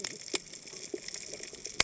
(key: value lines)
label: biophony, cascading saw
recorder: HydroMoth